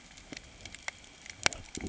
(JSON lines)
{"label": "ambient", "recorder": "HydroMoth"}